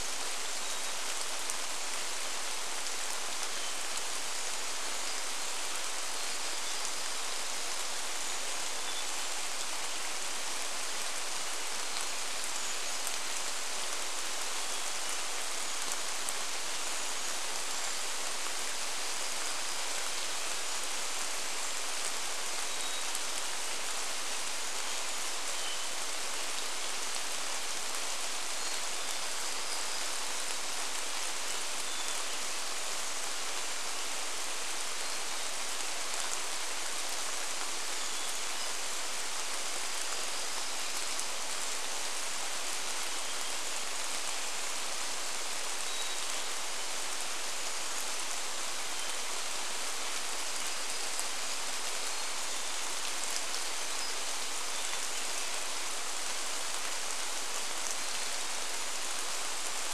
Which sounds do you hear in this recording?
Brown Creeper call, Hermit Thrush song, rain, warbler song